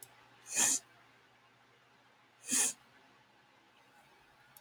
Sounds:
Sniff